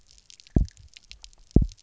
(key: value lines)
label: biophony, double pulse
recorder: SoundTrap 300